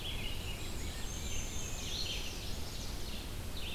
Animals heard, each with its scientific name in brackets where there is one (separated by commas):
Black-and-white Warbler (Mniotilta varia), Red-eyed Vireo (Vireo olivaceus), Chestnut-sided Warbler (Setophaga pensylvanica), Rose-breasted Grosbeak (Pheucticus ludovicianus)